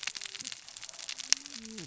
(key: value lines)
label: biophony, cascading saw
recorder: SoundTrap 600 or HydroMoth